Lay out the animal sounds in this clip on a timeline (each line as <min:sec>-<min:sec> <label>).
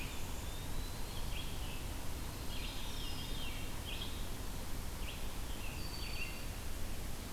0:00.0-0:01.7 Eastern Wood-Pewee (Contopus virens)
0:00.0-0:07.3 Red-eyed Vireo (Vireo olivaceus)
0:02.3-0:03.8 Veery (Catharus fuscescens)
0:05.6-0:06.6 Eastern Wood-Pewee (Contopus virens)